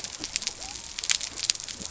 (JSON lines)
{"label": "biophony", "recorder": "SoundTrap 300"}